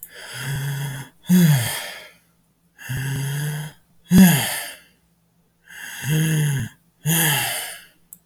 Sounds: Sigh